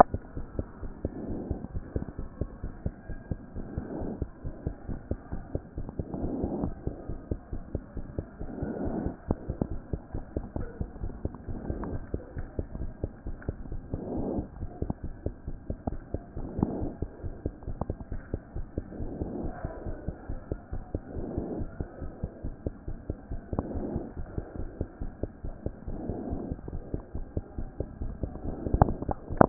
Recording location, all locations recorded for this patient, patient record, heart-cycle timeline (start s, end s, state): aortic valve (AV)
aortic valve (AV)+mitral valve (MV)
#Age: Child
#Sex: Female
#Height: 103.0 cm
#Weight: 19.1 kg
#Pregnancy status: False
#Murmur: Absent
#Murmur locations: nan
#Most audible location: nan
#Systolic murmur timing: nan
#Systolic murmur shape: nan
#Systolic murmur grading: nan
#Systolic murmur pitch: nan
#Systolic murmur quality: nan
#Diastolic murmur timing: nan
#Diastolic murmur shape: nan
#Diastolic murmur grading: nan
#Diastolic murmur pitch: nan
#Diastolic murmur quality: nan
#Outcome: Normal
#Campaign: 2014 screening campaign
0.00	0.36	unannotated
0.36	0.46	S1
0.46	0.56	systole
0.56	0.66	S2
0.66	0.82	diastole
0.82	0.90	S1
0.90	1.04	systole
1.04	1.12	S2
1.12	1.30	diastole
1.30	1.40	S1
1.40	1.50	systole
1.50	1.60	S2
1.60	1.74	diastole
1.74	1.84	S1
1.84	1.95	systole
1.95	2.05	S2
2.05	2.18	diastole
2.18	2.28	S1
2.28	2.40	systole
2.40	2.48	S2
2.48	2.62	diastole
2.62	2.70	S1
2.70	2.84	systole
2.84	2.92	S2
2.92	3.08	diastole
3.08	3.16	S1
3.16	3.30	systole
3.30	3.38	S2
3.38	3.58	diastole
3.58	29.49	unannotated